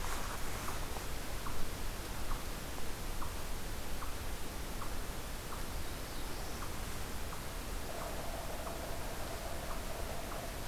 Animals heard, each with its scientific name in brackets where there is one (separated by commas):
Eastern Chipmunk (Tamias striatus), Black-throated Blue Warbler (Setophaga caerulescens), Yellow-bellied Sapsucker (Sphyrapicus varius)